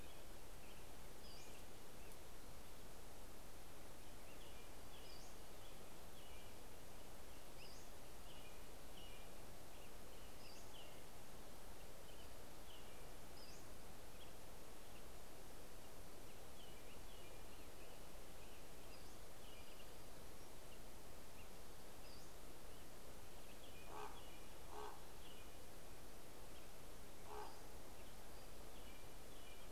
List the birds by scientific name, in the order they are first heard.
Turdus migratorius, Empidonax difficilis, Corvus corax